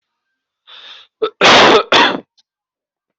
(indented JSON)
{
  "expert_labels": [
    {
      "quality": "poor",
      "cough_type": "unknown",
      "dyspnea": false,
      "wheezing": false,
      "stridor": false,
      "choking": false,
      "congestion": false,
      "nothing": true,
      "diagnosis": "healthy cough",
      "severity": "pseudocough/healthy cough"
    }
  ],
  "age": 39,
  "gender": "male",
  "respiratory_condition": false,
  "fever_muscle_pain": false,
  "status": "healthy"
}